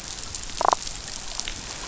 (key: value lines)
label: biophony, damselfish
recorder: SoundTrap 500